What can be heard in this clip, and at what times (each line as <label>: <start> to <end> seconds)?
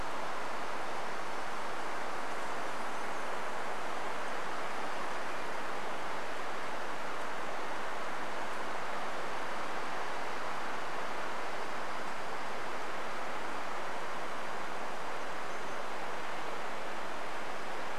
insect buzz: 0 to 6 seconds
warbler song: 2 to 4 seconds
insect buzz: 8 to 10 seconds
insect buzz: 12 to 16 seconds
warbler song: 14 to 16 seconds